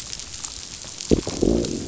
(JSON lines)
{"label": "biophony, growl", "recorder": "SoundTrap 500"}